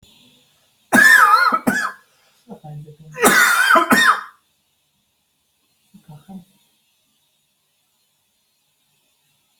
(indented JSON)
{
  "expert_labels": [
    {
      "quality": "ok",
      "cough_type": "dry",
      "dyspnea": false,
      "wheezing": true,
      "stridor": false,
      "choking": false,
      "congestion": false,
      "nothing": false,
      "diagnosis": "obstructive lung disease",
      "severity": "mild"
    }
  ]
}